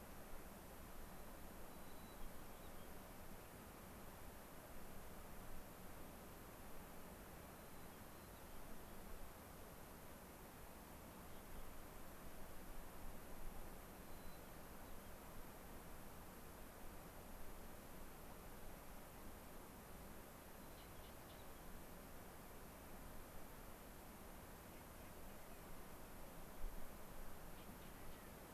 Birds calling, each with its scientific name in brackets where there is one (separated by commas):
White-crowned Sparrow (Zonotrichia leucophrys), Clark's Nutcracker (Nucifraga columbiana)